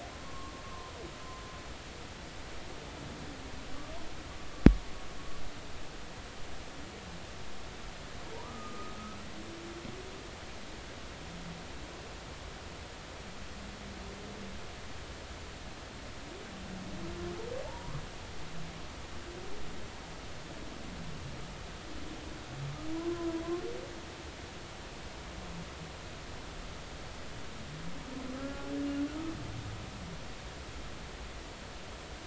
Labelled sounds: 0.2	0.9	humpback whale, 0.96 to 1.2 kHz
8.4	9.0	humpback whale, 1.1 to 1.3 kHz
17.6	18.0	humpback whale, 0.83 to 1.3 kHz
23.0	23.3	humpback whale, 0.93 to 1.1 kHz
28.4	28.7	humpback whale, 1.2 to 1.4 kHz

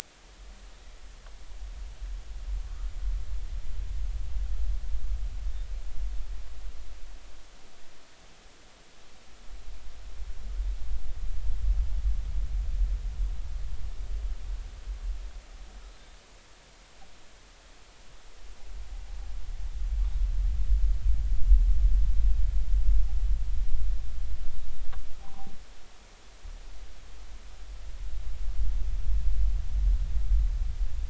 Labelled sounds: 25.2	25.5	humpback whale, 0.80 to 0.86 kHz

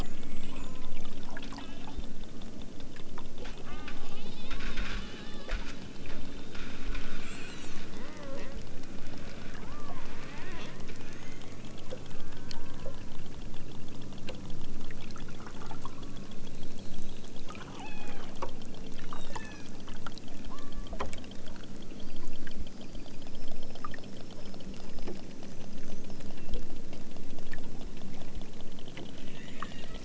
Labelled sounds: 0.0	0.6	killer whale, southern Alaska resident, 0.64 to 2.7 kHz
1.5	2.1	killer whale, southern Alaska resident, 0.97 to 4.0 kHz
3.6	4.5	killer whale, southern Alaska resident, 0.74 to 6.3 kHz
7.1	8.5	killer whale, southern Alaska resident, 0.55 to 8.0 kHz
9.6	10.1	killer whale, southern Alaska resident, 0.69 to 2.1 kHz
10.8	11.5	killer whale, southern Alaska resident, 0.83 to 3.5 kHz
12.0	13.1	killer whale, southern Alaska resident, 0.51 to 2.0 kHz
15.8	16.5	killer whale, southern Alaska resident, 0.64 to 1.5 kHz
17.7	18.3	killer whale, southern Alaska resident, 0.83 to 4.8 kHz
18.9	19.8	killer whale, southern Alaska resident, 1.4 to 8.0 kHz
20.5	21.0	killer whale, southern Alaska resident, 0.74 to 2.1 kHz
29.2	30.0	killer whale, southern Alaska resident, 1.3 to 4.1 kHz

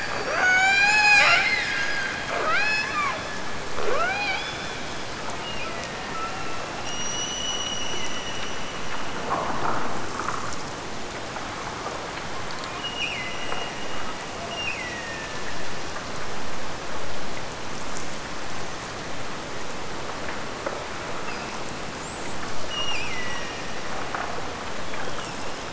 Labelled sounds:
0.2	2.1	killer whale, Bigg's (transient), Gulf of Alaska transient, 0.26 to 8.0 kHz
2.4	3.4	killer whale, Bigg's (transient), Gulf of Alaska transient, 0.36 to 6.9 kHz
3.8	4.9	killer whale, Bigg's (transient), Gulf of Alaska transient, 0.30 to 5.3 kHz
5.4	6.5	killer whale, Bigg's (transient), Gulf of Alaska transient, 1.6 to 3.0 kHz
6.8	8.9	killer whale, Bigg's (transient), Gulf of Alaska transient, 1.7 to 8.0 kHz
12.8	16.1	killer whale, Bigg's (transient), Gulf of Alaska transient, 1.6 to 8.0 kHz
22.7	24.0	killer whale, Bigg's (transient), Gulf of Alaska transient, 1.7 to 8.0 kHz

